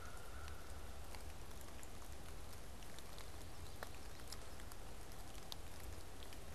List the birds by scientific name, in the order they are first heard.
Corvus brachyrhynchos